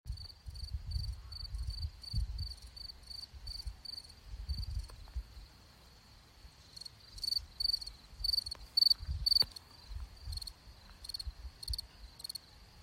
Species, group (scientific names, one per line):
Gryllus campestris
Orthoptera